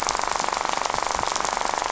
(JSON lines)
{"label": "biophony, rattle", "recorder": "SoundTrap 500"}